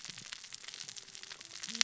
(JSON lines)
{"label": "biophony, cascading saw", "recorder": "SoundTrap 600 or HydroMoth"}